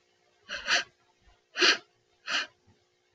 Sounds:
Sniff